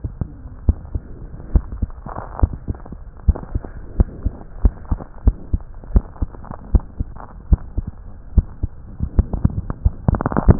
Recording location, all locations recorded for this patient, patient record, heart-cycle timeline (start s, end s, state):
aortic valve (AV)
aortic valve (AV)+pulmonary valve (PV)+tricuspid valve (TV)+mitral valve (MV)
#Age: Child
#Sex: Male
#Height: 136.0 cm
#Weight: 26.1 kg
#Pregnancy status: False
#Murmur: Absent
#Murmur locations: nan
#Most audible location: nan
#Systolic murmur timing: nan
#Systolic murmur shape: nan
#Systolic murmur grading: nan
#Systolic murmur pitch: nan
#Systolic murmur quality: nan
#Diastolic murmur timing: nan
#Diastolic murmur shape: nan
#Diastolic murmur grading: nan
#Diastolic murmur pitch: nan
#Diastolic murmur quality: nan
#Outcome: Abnormal
#Campaign: 2015 screening campaign
0.00	0.64	unannotated
0.64	0.78	S1
0.78	0.90	systole
0.90	1.05	S2
1.05	1.46	diastole
1.46	1.64	S1
1.64	1.80	systole
1.80	1.92	S2
1.92	2.37	diastole
2.37	2.52	S1
2.52	2.66	systole
2.66	2.78	S2
2.78	3.24	diastole
3.24	3.38	S1
3.38	3.52	systole
3.52	3.62	S2
3.62	3.94	diastole
3.94	4.10	S1
4.10	4.22	systole
4.22	4.34	S2
4.34	4.60	diastole
4.60	4.74	S1
4.74	4.88	systole
4.88	5.00	S2
5.00	5.22	diastole
5.22	5.38	S1
5.38	5.50	systole
5.50	5.62	S2
5.62	5.90	diastole
5.90	6.06	S1
6.06	6.18	systole
6.18	6.32	S2
6.32	6.66	diastole
6.66	6.82	S1
6.82	6.97	systole
6.97	7.14	S2
7.14	7.48	diastole
7.48	7.62	S1
7.62	7.74	systole
7.74	7.87	S2
7.87	8.30	diastole
8.30	8.48	S1
8.48	8.59	systole
8.59	8.70	S2
8.70	10.59	unannotated